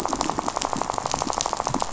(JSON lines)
{"label": "biophony, rattle", "recorder": "SoundTrap 500"}